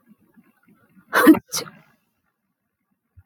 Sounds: Sneeze